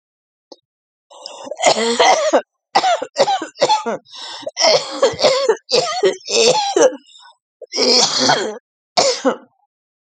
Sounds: Cough